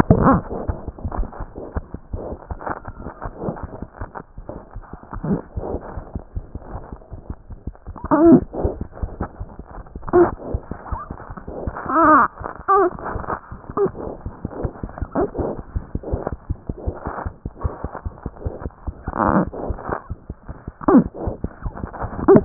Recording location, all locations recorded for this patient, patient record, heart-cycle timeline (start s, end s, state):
aortic valve (AV)
aortic valve (AV)+mitral valve (MV)
#Age: Infant
#Sex: Female
#Height: 51.0 cm
#Weight: 4.6 kg
#Pregnancy status: False
#Murmur: Absent
#Murmur locations: nan
#Most audible location: nan
#Systolic murmur timing: nan
#Systolic murmur shape: nan
#Systolic murmur grading: nan
#Systolic murmur pitch: nan
#Systolic murmur quality: nan
#Diastolic murmur timing: nan
#Diastolic murmur shape: nan
#Diastolic murmur grading: nan
#Diastolic murmur pitch: nan
#Diastolic murmur quality: nan
#Outcome: Abnormal
#Campaign: 2014 screening campaign
0.00	15.65	unannotated
15.65	15.74	diastole
15.74	15.82	S1
15.82	15.94	systole
15.94	16.00	S2
16.00	16.12	diastole
16.12	16.20	S1
16.20	16.31	systole
16.31	16.37	S2
16.37	16.50	diastole
16.50	16.58	S1
16.58	16.68	systole
16.68	16.74	S2
16.74	16.87	diastole
16.87	16.95	S1
16.95	17.06	systole
17.06	17.12	S2
17.12	17.26	diastole
17.26	17.34	S1
17.34	17.46	systole
17.46	17.51	S2
17.51	17.64	diastole
17.64	17.72	S1
17.72	17.83	systole
17.83	17.90	S2
17.90	18.06	diastole
18.06	18.14	S1
18.14	18.26	systole
18.26	18.32	S2
18.32	18.45	diastole
18.45	18.54	S1
18.54	18.66	systole
18.66	18.72	S2
18.72	18.87	diastole
18.87	22.45	unannotated